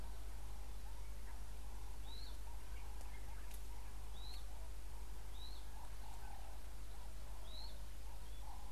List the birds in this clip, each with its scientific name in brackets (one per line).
Pale White-eye (Zosterops flavilateralis)